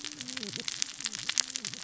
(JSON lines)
{"label": "biophony, cascading saw", "recorder": "SoundTrap 600 or HydroMoth"}